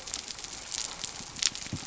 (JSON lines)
{"label": "biophony", "recorder": "SoundTrap 300"}